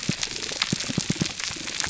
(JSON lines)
{"label": "biophony, pulse", "recorder": "SoundTrap 300"}